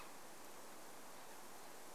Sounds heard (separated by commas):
unidentified sound